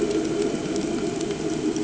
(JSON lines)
{"label": "anthrophony, boat engine", "recorder": "HydroMoth"}